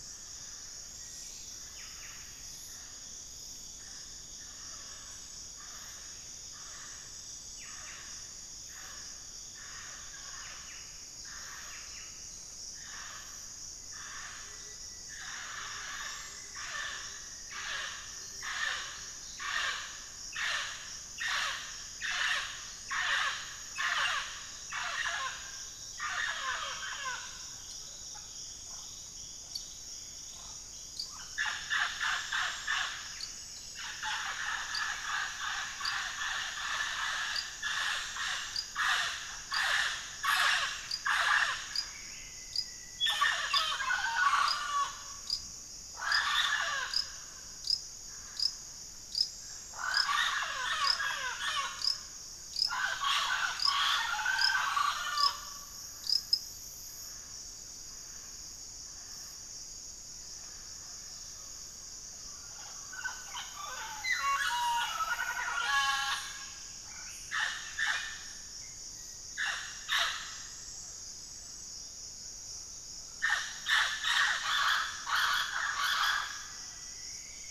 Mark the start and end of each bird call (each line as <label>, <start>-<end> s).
Buff-breasted Wren (Cantorchilus leucotis), 0.0-2.8 s
Mealy Parrot (Amazona farinosa), 0.0-77.5 s
Black-faced Antthrush (Formicarius analis), 0.8-3.1 s
Buff-breasted Wren (Cantorchilus leucotis), 7.5-12.5 s
Rufous-fronted Antthrush (Formicarius rufifrons), 13.7-19.2 s
Gilded Barbet (Capito auratus), 14.3-20.1 s
Buff-breasted Wren (Cantorchilus leucotis), 32.9-33.8 s
Rufous-fronted Antthrush (Formicarius rufifrons), 39.1-43.8 s
Buff-breasted Wren (Cantorchilus leucotis), 41.5-42.7 s
Buff-breasted Wren (Cantorchilus leucotis), 66.7-67.7 s
Rufous-fronted Antthrush (Formicarius rufifrons), 75.7-77.5 s